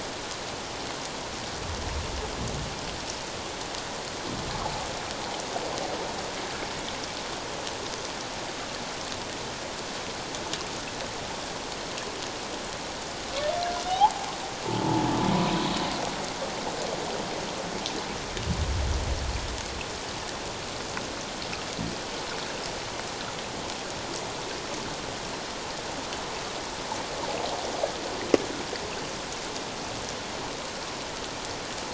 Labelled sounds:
13.9	14.3	humpback whale, 0.78 to 1.1 kHz

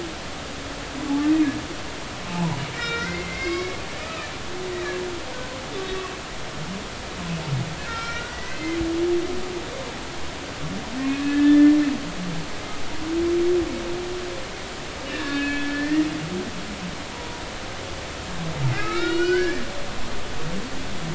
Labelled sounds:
2.3	4.3	humpback whale, 0.80 to 5.0 kHz
7.9	8.8	humpback whale, 1.3 to 2.4 kHz
11.1	11.7	humpback whale, 1.6 to 2.7 kHz
15.1	16.1	humpback whale, 1.6 to 2.6 kHz
17.1	17.4	humpback whale, 0.93 to 1.0 kHz
18.7	19.7	humpback whale, 1.2 to 4.6 kHz

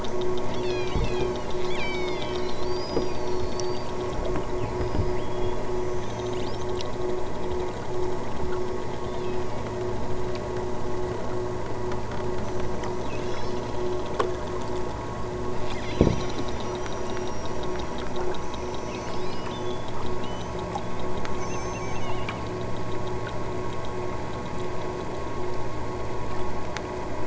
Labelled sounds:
0.6	3.0	killer whale, southern Alaska resident, 1.1 to 7.8 kHz
4.7	6.6	killer whale, southern Alaska resident, 2.0 to 8.0 kHz
8.9	9.9	killer whale, southern Alaska resident, 2.0 to 6.7 kHz
12.3	13.7	killer whale, southern Alaska resident, 2.1 to 6.8 kHz
15.6	17.8	killer whale, southern Alaska resident, 1.8 to 6.3 kHz
18.4	22.2	killer whale, southern Alaska resident, 2.3 to 8.0 kHz

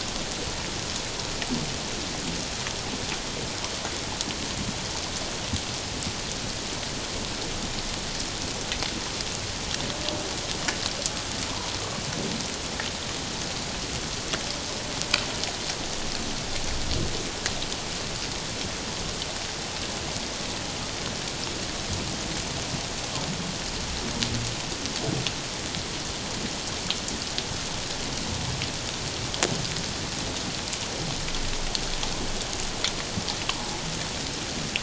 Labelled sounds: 11.5	11.7	humpback whale, 0.88 to 1.2 kHz

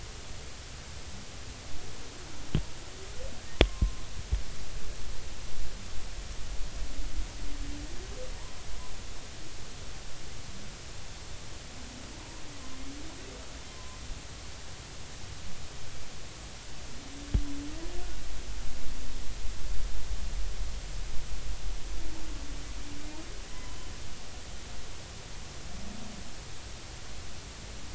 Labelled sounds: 3.6	3.9	humpback whale, 0.99 to 1.1 kHz
13.7	14.0	humpback whale, 0.96 to 1.1 kHz
23.5	23.9	humpback whale, 0.96 to 3.1 kHz

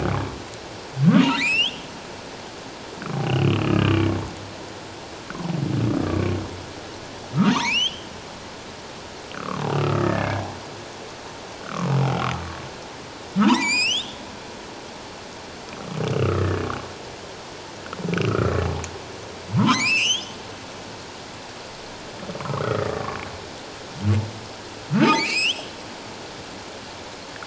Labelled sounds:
1.2	1.9	humpback whale, 0.88 to 4.5 kHz
3.2	3.5	humpback whale, 2.4 to 3.1 kHz
6.0	6.3	humpback whale, 1.1 to 1.3 kHz
7.5	8.1	humpback whale, 0.84 to 4.5 kHz
9.3	10.4	humpback whale, 1.0 to 2.3 kHz
11.6	11.9	humpback whale, 0.97 to 1.6 kHz
13.4	14.2	humpback whale, 0.81 to 8.0 kHz
16.1	16.7	humpback whale, 1.1 to 1.9 kHz
18.2	18.5	humpback whale, 1.1 to 1.7 kHz
19.6	20.4	humpback whale, 0.88 to 6.8 kHz
22.4	23.2	humpback whale, 1.0 to 1.5 kHz
24.9	25.7	humpback whale, 1.1 to 5.5 kHz

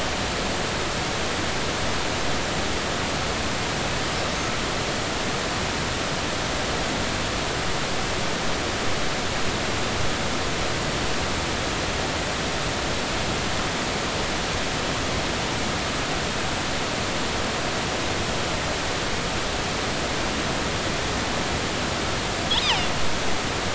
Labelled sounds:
22.5	22.8	killer whale, northern resident, G clan, 2.5 to 3.9 kHz

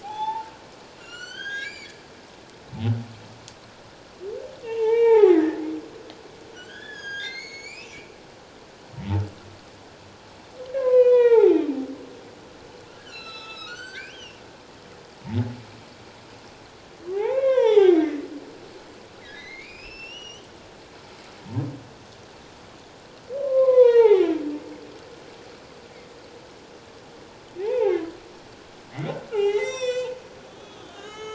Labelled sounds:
0.0	1.9	humpback whale, 0.78 to 7.7 kHz
4.6	5.6	humpback whale, 0.78 to 3.9 kHz
6.5	8.0	humpback whale, 1.4 to 7.5 kHz
10.7	11.6	humpback whale, 0.78 to 4.0 kHz
13.0	14.4	humpback whale, 1.2 to 8.0 kHz
17.1	18.2	humpback whale, 0.78 to 5.9 kHz
19.2	20.5	humpback whale, 1.6 to 6.2 kHz
23.4	24.3	humpback whale, 0.78 to 4.3 kHz
27.6	27.9	humpback whale, 0.78 to 1.0 kHz
29.3	30.8	humpback whale, 0.78 to 7.9 kHz

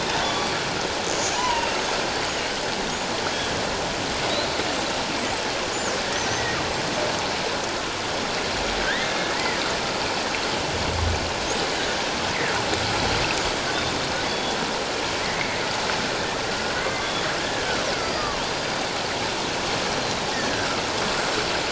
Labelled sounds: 0.2	0.5	killer whale, northern resident, G clan, 3.3 to 3.5 kHz
1.3	1.8	killer whale, northern resident, G clan, 0.88 to 3.1 kHz
8.8	9.6	killer whale, northern resident, G clan, 1.5 to 2.2 kHz
14.3	14.6	killer whale, northern resident, G clan, 3.3 to 3.5 kHz
16.7	18.4	killer whale, northern resident, G clan, 0.91 to 4.9 kHz
20.0	20.7	killer whale, northern resident, G clan, 1.5 to 4.2 kHz

